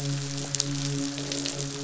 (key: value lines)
label: biophony, midshipman
recorder: SoundTrap 500

label: biophony, croak
recorder: SoundTrap 500